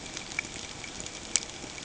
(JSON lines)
{"label": "ambient", "recorder": "HydroMoth"}